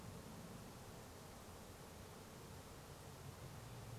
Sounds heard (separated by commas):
airplane